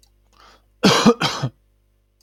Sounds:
Cough